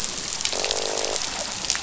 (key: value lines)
label: biophony, croak
recorder: SoundTrap 500